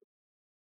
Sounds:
Sniff